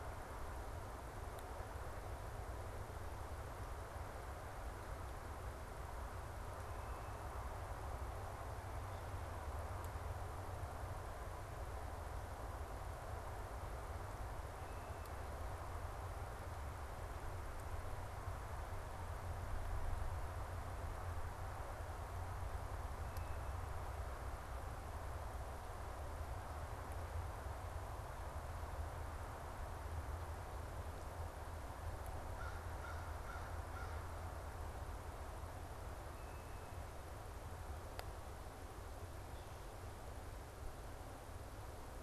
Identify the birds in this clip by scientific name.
Corvus brachyrhynchos